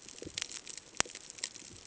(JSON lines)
{"label": "ambient", "recorder": "HydroMoth"}